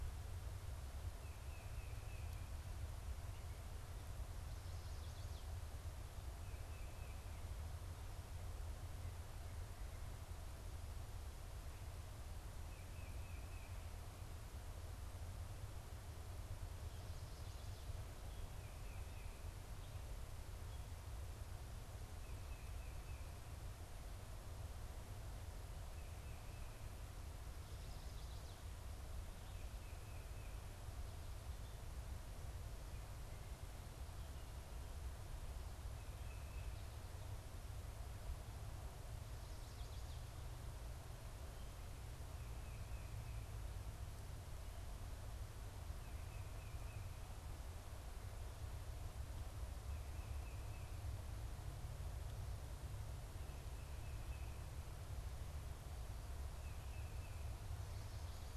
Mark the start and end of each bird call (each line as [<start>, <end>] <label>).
[0.97, 2.57] Tufted Titmouse (Baeolophus bicolor)
[4.17, 5.67] Chestnut-sided Warbler (Setophaga pensylvanica)
[6.17, 7.37] Tufted Titmouse (Baeolophus bicolor)
[12.47, 13.87] Tufted Titmouse (Baeolophus bicolor)
[18.17, 19.47] Tufted Titmouse (Baeolophus bicolor)
[21.97, 23.37] Tufted Titmouse (Baeolophus bicolor)
[25.77, 26.87] Tufted Titmouse (Baeolophus bicolor)
[27.17, 28.97] Chestnut-sided Warbler (Setophaga pensylvanica)
[29.37, 30.67] Tufted Titmouse (Baeolophus bicolor)
[35.57, 36.97] Tufted Titmouse (Baeolophus bicolor)
[39.07, 40.67] Chestnut-sided Warbler (Setophaga pensylvanica)
[42.37, 51.17] Tufted Titmouse (Baeolophus bicolor)
[53.27, 57.47] Tufted Titmouse (Baeolophus bicolor)